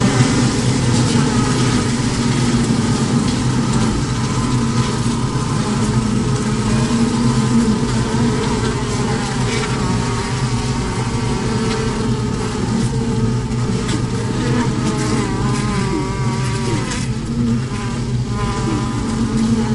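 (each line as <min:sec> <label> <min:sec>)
0:00.0 Multiple bees buzz continuously with a steady, droning sound. 0:19.7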